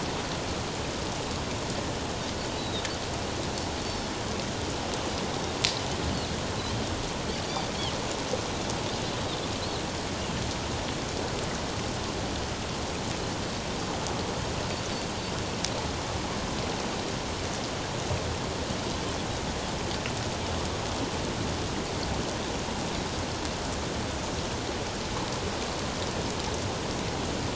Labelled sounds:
2.6	2.8	Pacific white-sided dolphin, 3.5 to 4.0 kHz

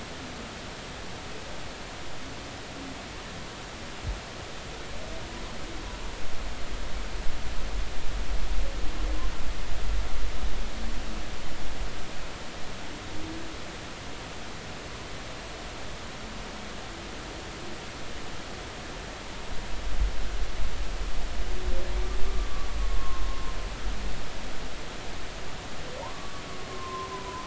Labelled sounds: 22.7	23.2	humpback whale, 1.0 to 1.2 kHz
26.0	26.4	humpback whale, 0.86 to 1.2 kHz
26.7	27.4	humpback whale, 0.90 to 1.1 kHz

